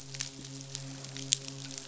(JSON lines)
{"label": "biophony, midshipman", "recorder": "SoundTrap 500"}